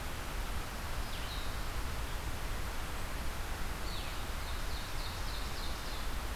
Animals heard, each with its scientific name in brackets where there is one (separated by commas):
Red-eyed Vireo (Vireo olivaceus), Blue-headed Vireo (Vireo solitarius), Ovenbird (Seiurus aurocapilla)